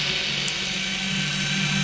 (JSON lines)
{"label": "anthrophony, boat engine", "recorder": "SoundTrap 500"}